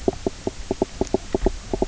{"label": "biophony, knock croak", "recorder": "SoundTrap 300"}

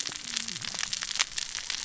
{"label": "biophony, cascading saw", "recorder": "SoundTrap 600 or HydroMoth"}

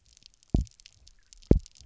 {"label": "biophony, double pulse", "recorder": "SoundTrap 300"}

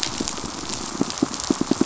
{"label": "biophony, pulse", "recorder": "SoundTrap 500"}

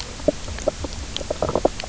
{"label": "biophony, knock croak", "recorder": "SoundTrap 300"}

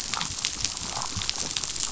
{"label": "biophony, damselfish", "recorder": "SoundTrap 500"}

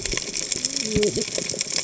{"label": "biophony, cascading saw", "recorder": "HydroMoth"}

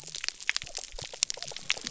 {"label": "biophony", "recorder": "SoundTrap 300"}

